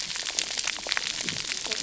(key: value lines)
label: biophony, cascading saw
recorder: SoundTrap 300